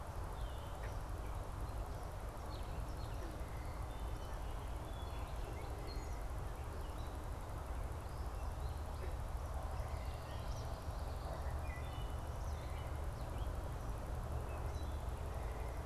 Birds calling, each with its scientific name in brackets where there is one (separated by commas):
Wood Thrush (Hylocichla mustelina), Eastern Kingbird (Tyrannus tyrannus), Gray Catbird (Dumetella carolinensis)